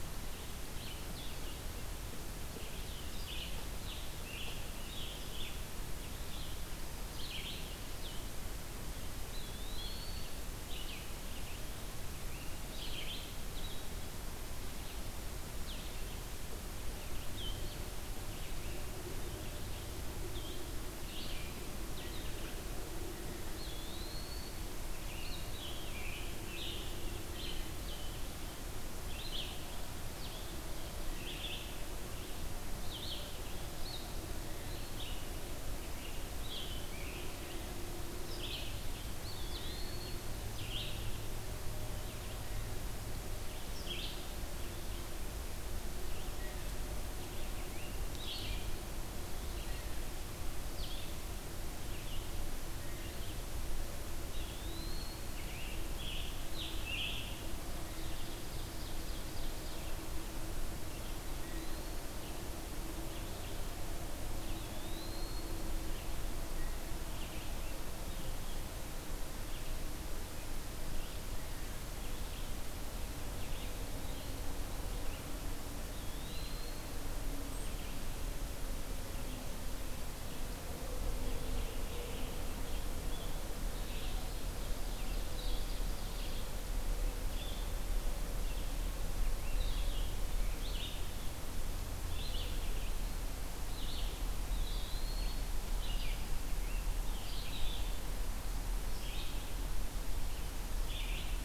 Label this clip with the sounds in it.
Blue-headed Vireo, Red-eyed Vireo, Scarlet Tanager, Eastern Wood-Pewee, Ovenbird